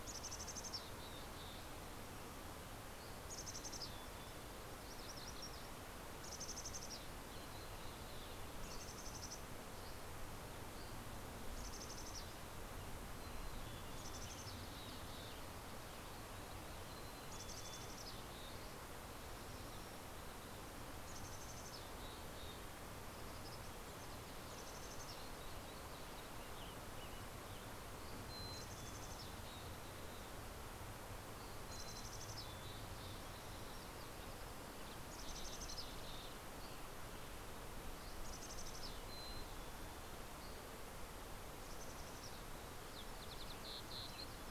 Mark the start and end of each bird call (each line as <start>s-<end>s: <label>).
0.0s-1.8s: Mountain Chickadee (Poecile gambeli)
2.6s-3.6s: Dusky Flycatcher (Empidonax oberholseri)
3.0s-4.6s: Mountain Chickadee (Poecile gambeli)
4.3s-5.9s: MacGillivray's Warbler (Geothlypis tolmiei)
6.1s-10.2s: Mountain Chickadee (Poecile gambeli)
9.6s-11.2s: Dusky Flycatcher (Empidonax oberholseri)
11.6s-12.5s: Mountain Chickadee (Poecile gambeli)
13.0s-15.2s: Mountain Chickadee (Poecile gambeli)
16.5s-19.2s: Mountain Chickadee (Poecile gambeli)
20.9s-23.6s: Mountain Chickadee (Poecile gambeli)
24.2s-26.5s: Mountain Chickadee (Poecile gambeli)
25.4s-27.9s: Western Tanager (Piranga ludoviciana)
27.8s-30.1s: Mountain Chickadee (Poecile gambeli)
31.0s-33.7s: Mountain Chickadee (Poecile gambeli)
34.6s-36.6s: Mountain Chickadee (Poecile gambeli)
36.4s-37.5s: Dusky Flycatcher (Empidonax oberholseri)
38.1s-40.7s: Mountain Chickadee (Poecile gambeli)
39.8s-41.1s: Dusky Flycatcher (Empidonax oberholseri)
41.4s-42.7s: Mountain Chickadee (Poecile gambeli)
42.5s-44.5s: Lazuli Bunting (Passerina amoena)